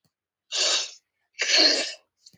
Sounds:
Sniff